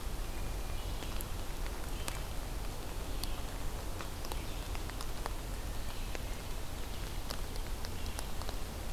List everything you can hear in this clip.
Red-eyed Vireo, Hermit Thrush